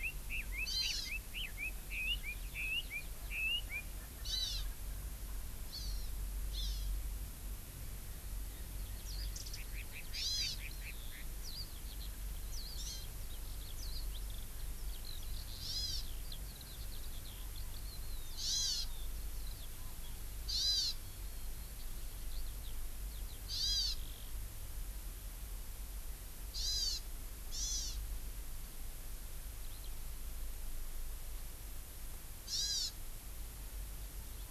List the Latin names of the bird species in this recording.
Leiothrix lutea, Chlorodrepanis virens, Alauda arvensis, Zosterops japonicus